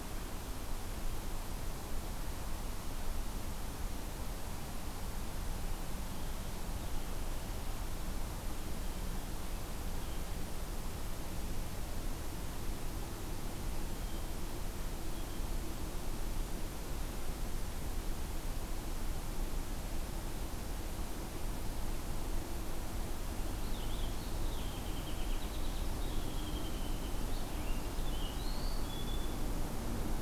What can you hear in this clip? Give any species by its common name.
Blue Jay, Purple Finch